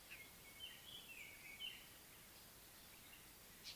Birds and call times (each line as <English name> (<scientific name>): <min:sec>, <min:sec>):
Northern Puffback (Dryoscopus gambensis): 0:03.7